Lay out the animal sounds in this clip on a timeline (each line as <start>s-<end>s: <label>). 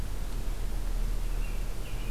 1.2s-2.1s: American Robin (Turdus migratorius)